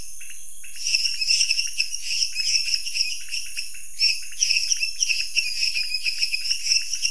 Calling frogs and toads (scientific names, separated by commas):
Dendropsophus minutus, Dendropsophus nanus, Leptodactylus podicipinus